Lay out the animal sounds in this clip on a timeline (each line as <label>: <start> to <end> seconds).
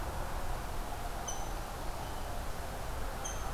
Rose-breasted Grosbeak (Pheucticus ludovicianus): 0.0 to 3.5 seconds